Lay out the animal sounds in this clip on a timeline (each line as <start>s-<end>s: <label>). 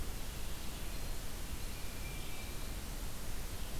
1.5s-2.8s: Tufted Titmouse (Baeolophus bicolor)